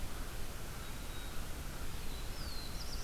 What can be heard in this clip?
American Crow, Black-throated Green Warbler, Black-throated Blue Warbler